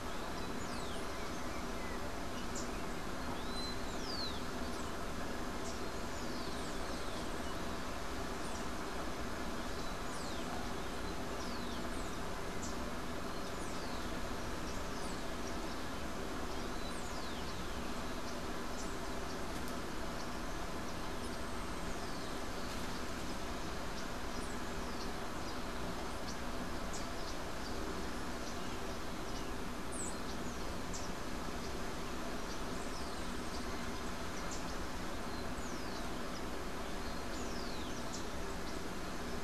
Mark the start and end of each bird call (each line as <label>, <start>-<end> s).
Rufous-collared Sparrow (Zonotrichia capensis), 2.9-12.1 s
Yellow-faced Grassquit (Tiaris olivaceus), 6.2-7.7 s
Yellow-faced Grassquit (Tiaris olivaceus), 21.0-22.7 s
Rufous-collared Sparrow (Zonotrichia capensis), 32.2-39.4 s
Yellow-faced Grassquit (Tiaris olivaceus), 32.3-34.0 s